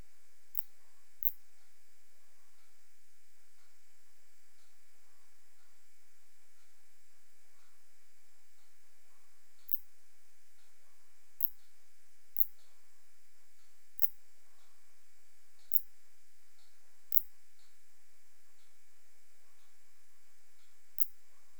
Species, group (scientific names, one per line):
Phaneroptera nana
Orthoptera